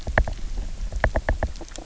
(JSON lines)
{"label": "biophony, knock", "recorder": "SoundTrap 300"}